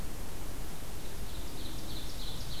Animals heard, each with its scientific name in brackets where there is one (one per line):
Ovenbird (Seiurus aurocapilla)